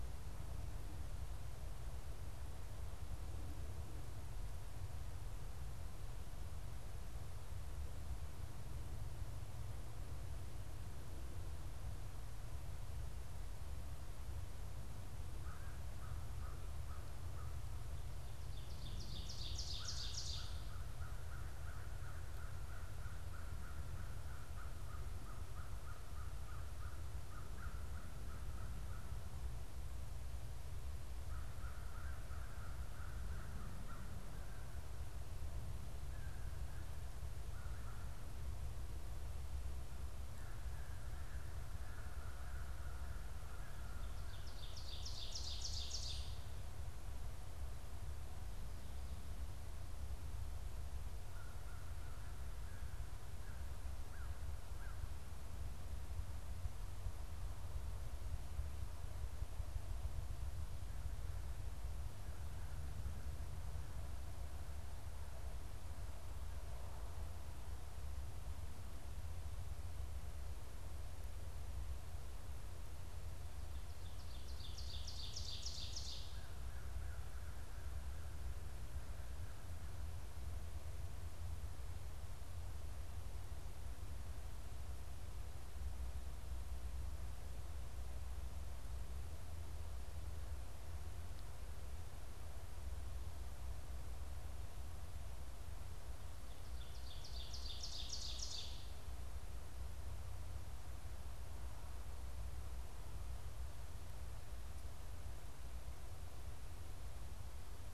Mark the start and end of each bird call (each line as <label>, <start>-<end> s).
American Crow (Corvus brachyrhynchos), 15.4-17.8 s
Ovenbird (Seiurus aurocapilla), 18.4-20.8 s
American Crow (Corvus brachyrhynchos), 19.7-29.3 s
American Crow (Corvus brachyrhynchos), 31.2-44.1 s
Ovenbird (Seiurus aurocapilla), 44.3-46.6 s
American Crow (Corvus brachyrhynchos), 51.2-55.4 s
Ovenbird (Seiurus aurocapilla), 73.6-76.6 s
American Crow (Corvus brachyrhynchos), 76.2-78.4 s
Ovenbird (Seiurus aurocapilla), 96.6-99.3 s